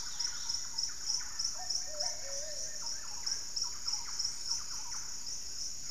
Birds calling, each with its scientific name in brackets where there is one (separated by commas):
Plumbeous Pigeon (Patagioenas plumbea), Thrush-like Wren (Campylorhynchus turdinus), unidentified bird, Dusky-capped Greenlet (Pachysylvia hypoxantha), Wing-barred Piprites (Piprites chloris)